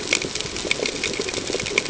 {"label": "ambient", "recorder": "HydroMoth"}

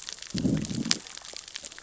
{"label": "biophony, growl", "recorder": "SoundTrap 600 or HydroMoth"}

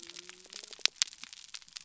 {"label": "biophony", "recorder": "SoundTrap 300"}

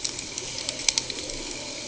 {"label": "ambient", "recorder": "HydroMoth"}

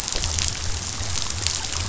{"label": "biophony", "recorder": "SoundTrap 500"}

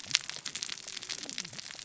{"label": "biophony, cascading saw", "recorder": "SoundTrap 600 or HydroMoth"}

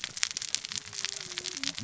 {"label": "biophony, cascading saw", "recorder": "SoundTrap 600 or HydroMoth"}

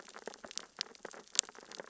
{"label": "biophony, sea urchins (Echinidae)", "recorder": "SoundTrap 600 or HydroMoth"}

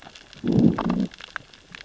{"label": "biophony, growl", "recorder": "SoundTrap 600 or HydroMoth"}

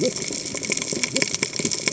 {"label": "biophony, cascading saw", "recorder": "HydroMoth"}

